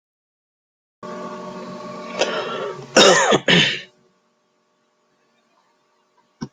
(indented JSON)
{
  "expert_labels": [
    {
      "quality": "good",
      "cough_type": "wet",
      "dyspnea": false,
      "wheezing": false,
      "stridor": false,
      "choking": false,
      "congestion": false,
      "nothing": true,
      "diagnosis": "healthy cough",
      "severity": "pseudocough/healthy cough"
    }
  ],
  "age": 50,
  "gender": "male",
  "respiratory_condition": true,
  "fever_muscle_pain": false,
  "status": "COVID-19"
}